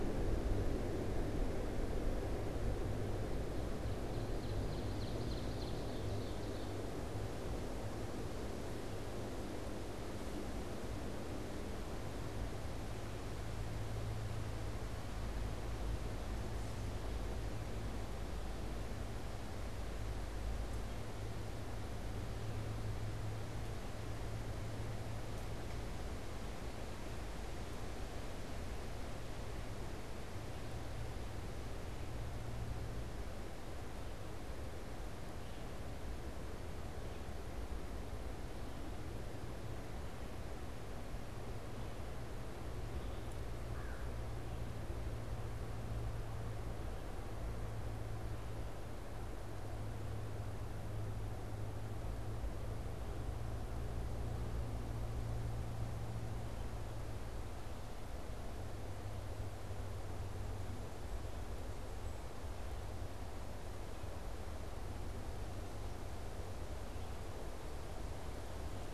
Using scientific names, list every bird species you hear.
Seiurus aurocapilla, Corvus brachyrhynchos